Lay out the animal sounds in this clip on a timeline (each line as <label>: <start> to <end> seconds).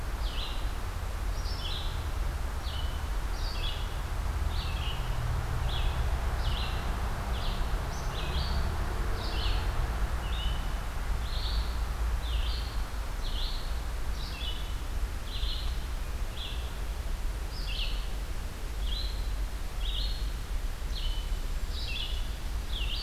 Red-eyed Vireo (Vireo olivaceus): 0.0 to 22.9 seconds